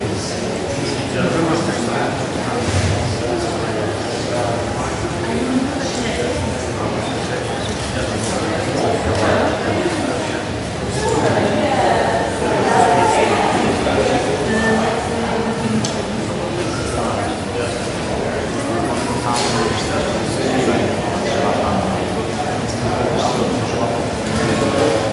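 0.0s Many people are talking in a reverberant hall. 25.1s

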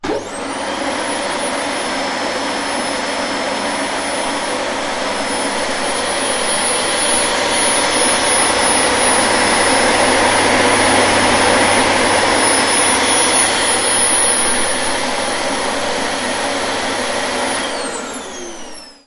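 0.3s A vacuum cleaner is running. 17.6s
17.7s A vacuum cleaner shuts down. 19.0s

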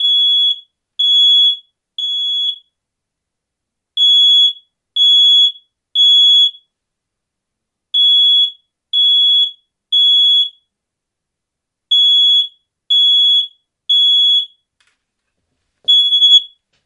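0.0s An alarm beeps loudly and repeatedly every second, slightly fading at the end. 2.6s
3.8s An alarm beeps loudly and repeatedly every second. 6.8s
7.8s An alarm beeps loudly and repeatedly every second. 10.8s
11.8s An alarm beeps loudly and repeatedly every second. 14.7s
15.8s An alarm is beeping loudly indoors. 16.6s

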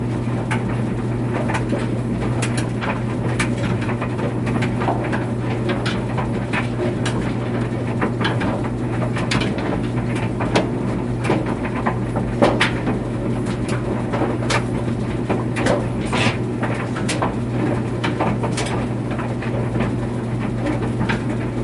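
0.0s Soft, rhythmic thumping and rustling of clothes tumbling in a dryer. 21.6s
0.0s A steady mechanical whir from a dryer motor. 21.6s

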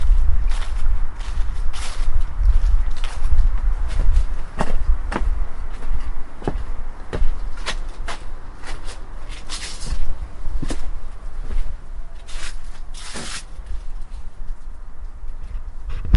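0.0s A person walks on dry leaves, producing soft, crisp footstep sounds with faint distant city traffic in the background. 16.2s
4.8s Footsteps briefly shift to a duller, muted tone, possibly stepping on wood or a different surface. 5.9s
6.6s Footsteps briefly shift to a duller, muted tone, possibly stepping on wood or a different surface. 8.3s
10.4s Footsteps briefly shift to a duller, muted tone, possibly stepping on wood or a different surface. 11.8s

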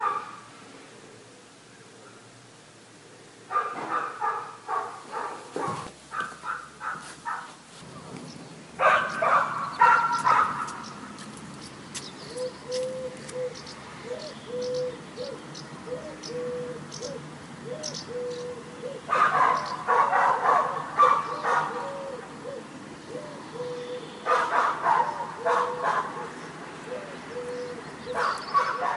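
3.5s A dog barks softly in the distance. 7.4s
8.8s A dog barks loudly with a sharp and intense sound. 10.8s
12.2s A dove coos softly, providing a steady and calming natural ambiance. 29.0s
19.1s A dog barks while a dove coos in the background, creating a contrast between sharp and soft sounds. 29.0s

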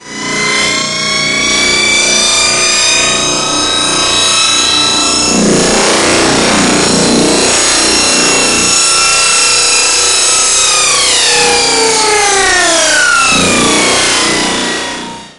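0.0s An airplane propeller drones deeply and gets louder until abruptly stopping. 8.9s
0.0s A loud, high-pitched mechanical siren wails. 15.4s
13.5s A deep, droning propeller sound. 15.4s

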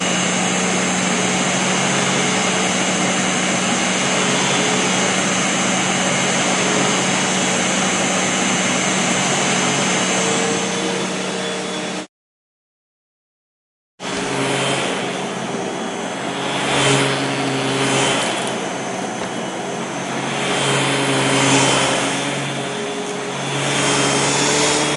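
0.0s A vacuum cleaner hums continuously in a rhythmic pattern. 12.2s
13.6s A vacuum cleaner hums continuously as it moves, with its loudness rising and falling. 25.0s

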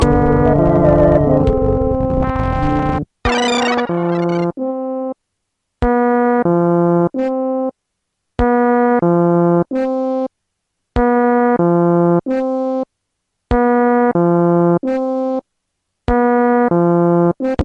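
0.0s A low-quality sound from an old retro game. 3.9s
0.0s A beeping sound indicating an error changes its frequency. 5.2s
5.8s An error beep changes its frequency. 7.7s
8.4s A beeping sound indicating an error changes its frequency. 10.3s
10.9s A beeping sound indicating an error changes its frequency. 12.9s
13.5s An error beeping sound changes its frequency. 17.6s

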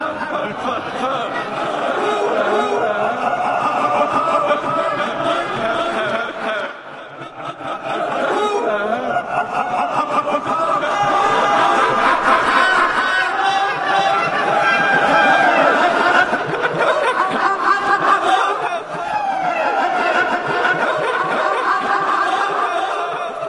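0.0s A group of people laughing, with the sound distorted due to reverse audio. 23.5s

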